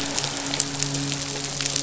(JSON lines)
{"label": "biophony, midshipman", "recorder": "SoundTrap 500"}